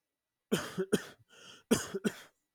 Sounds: Cough